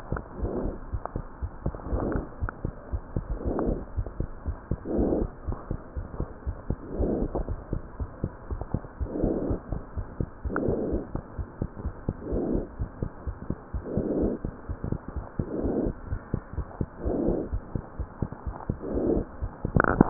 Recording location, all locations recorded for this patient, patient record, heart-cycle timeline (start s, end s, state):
pulmonary valve (PV)
aortic valve (AV)+pulmonary valve (PV)+tricuspid valve (TV)+mitral valve (MV)
#Age: Child
#Sex: Female
#Height: 99.0 cm
#Weight: 16.0 kg
#Pregnancy status: False
#Murmur: Absent
#Murmur locations: nan
#Most audible location: nan
#Systolic murmur timing: nan
#Systolic murmur shape: nan
#Systolic murmur grading: nan
#Systolic murmur pitch: nan
#Systolic murmur quality: nan
#Diastolic murmur timing: nan
#Diastolic murmur shape: nan
#Diastolic murmur grading: nan
#Diastolic murmur pitch: nan
#Diastolic murmur quality: nan
#Outcome: Abnormal
#Campaign: 2015 screening campaign
0.00	0.72	unannotated
0.72	0.94	diastole
0.94	1.02	S1
1.02	1.16	systole
1.16	1.24	S2
1.24	1.42	diastole
1.42	1.50	S1
1.50	1.66	systole
1.66	1.74	S2
1.74	1.92	diastole
1.92	2.06	S1
2.06	2.16	systole
2.16	2.24	S2
2.24	2.42	diastole
2.42	2.52	S1
2.52	2.64	systole
2.64	2.72	S2
2.72	2.92	diastole
2.92	3.04	S1
3.04	3.16	systole
3.16	3.26	S2
3.26	3.46	diastole
3.46	3.58	S1
3.58	3.67	systole
3.67	3.78	S2
3.78	3.96	diastole
3.96	4.06	S1
4.06	4.18	systole
4.18	4.26	S2
4.26	4.45	diastole
4.45	4.56	S1
4.56	4.68	systole
4.68	4.78	S2
4.78	4.96	diastole
4.96	5.09	S1
5.09	5.18	systole
5.18	5.30	S2
5.30	5.45	diastole
5.45	5.56	S1
5.56	5.67	systole
5.67	5.78	S2
5.78	5.95	diastole
5.95	6.06	S1
6.06	6.17	systole
6.17	6.28	S2
6.28	6.44	diastole
6.44	6.56	S1
6.56	6.66	systole
6.66	6.78	S2
6.78	6.98	diastole
6.98	20.10	unannotated